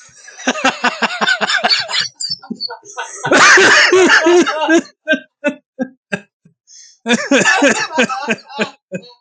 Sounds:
Laughter